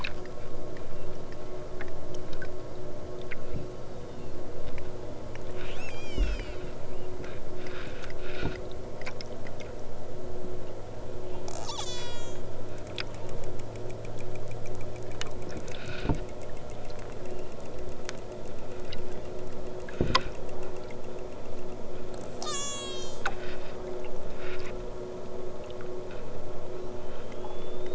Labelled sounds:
3.5	4.5	killer whale, southern Alaska resident, 2.2 to 6.7 kHz
5.6	6.9	killer whale, southern Alaska resident, 1.1 to 8.0 kHz
11.4	12.5	killer whale, southern Alaska resident, 0.83 to 8.0 kHz
22.3	23.3	killer whale, southern Alaska resident, 0.83 to 8.0 kHz

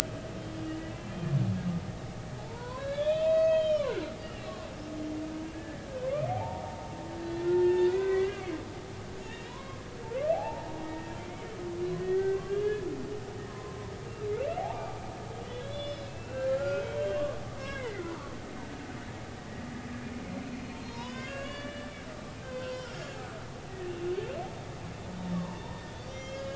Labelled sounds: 0.4	0.8	humpback whale, 2.8 to 3.3 kHz
2.4	4.7	humpback whale, 0.80 to 6.5 kHz
5.5	6.6	humpback whale, 0.80 to 2.0 kHz
7.4	8.5	humpback whale, 0.93 to 2.9 kHz
9.0	9.8	humpback whale, 0.93 to 3.0 kHz
10.3	11.1	humpback whale, 0.80 to 2.0 kHz
12.1	18.1	humpback whale, 0.93 to 5.6 kHz
20.8	21.9	humpback whale, 0.90 to 7.0 kHz
22.4	23.1	humpback whale, 0.90 to 5.7 kHz
25.3	26.5	humpback whale, 0.86 to 7.0 kHz

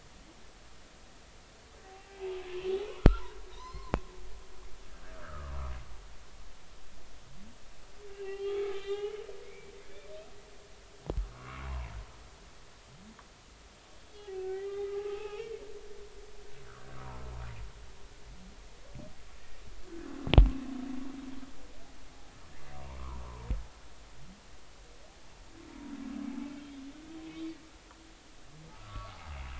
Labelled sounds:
2.1	2.4	humpback whale, 0.80 to 0.93 kHz
3.0	3.9	humpback whale, 1.2 to 5.4 kHz
4.5	5.6	humpback whale, 0.90 to 1.8 kHz
8.1	9.7	humpback whale, 0.80 to 4.4 kHz
11.3	11.6	humpback whale, 0.99 to 1.4 kHz
14.1	15.8	humpback whale, 0.80 to 5.6 kHz
17.0	17.3	humpback whale, 0.86 to 1.1 kHz
22.5	23.5	humpback whale, 0.90 to 2.1 kHz
28.7	29.5	humpback whale, 1.1 to 2.9 kHz

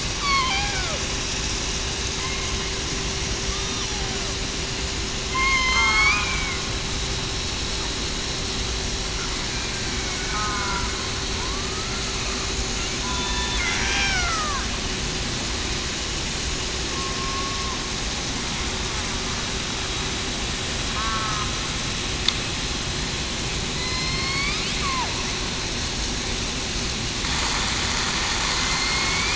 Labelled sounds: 0.2	0.7	killer whale, southern resident, 2.1 to 3.5 kHz
3.9	4.3	killer whale, southern resident, 0.56 to 0.87 kHz
5.3	6.2	killer whale, southern resident, 0.82 to 6.6 kHz
9.8	10.9	killer whale, southern resident, 1.3 to 2.3 kHz
11.3	11.7	killer whale, southern resident, 0.89 to 1.2 kHz
13.0	13.5	killer whale, southern resident, 0.96 to 1.0 kHz
13.8	14.6	killer whale, southern resident, 0.63 to 2.4 kHz
16.9	17.6	killer whale, southern resident, 1.05 to 1.12 kHz
21.0	21.5	killer whale, southern resident, 1.0 to 1.4 kHz
23.7	24.6	killer whale, southern resident, 1.0 to 5.4 kHz
28.6	29.3	killer whale, southern resident, 2.0 to 4.4 kHz

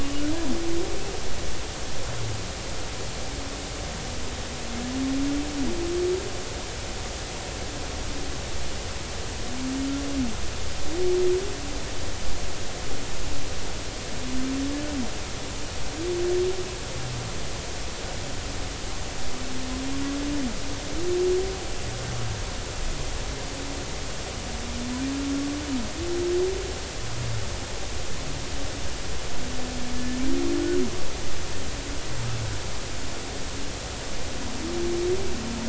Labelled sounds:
0.0	0.3	humpback whale, 2.8 to 2.9 kHz

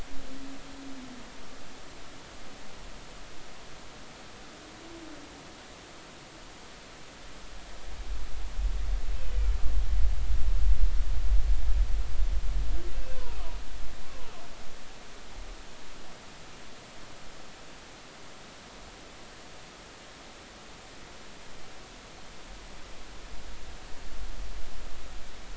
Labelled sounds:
12.9	13.4	humpback whale, 0.90 to 2.7 kHz

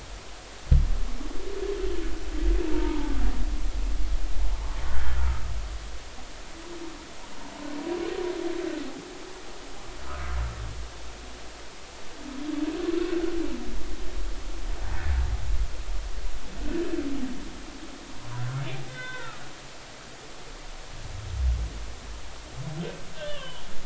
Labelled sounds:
2.7	3.1	humpback whale, 0.83 to 1.0 kHz
10.0	10.4	humpback whale, 0.99 to 1.5 kHz
18.9	19.4	humpback whale, 0.86 to 3.6 kHz
23.2	23.7	humpback whale, 0.86 to 3.6 kHz

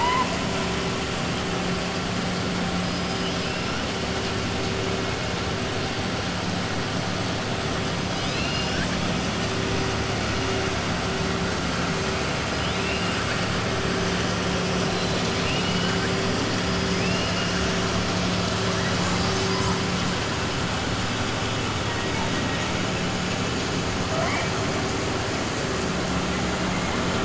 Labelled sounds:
12.6	13.4	killer whale, 1.4 to 3.9 kHz
14.7	16.1	killer whale, 1.6 to 5.1 kHz
16.9	17.6	killer whale, 2.1 to 3.4 kHz

